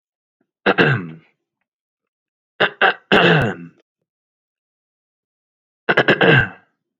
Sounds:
Throat clearing